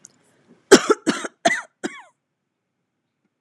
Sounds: Cough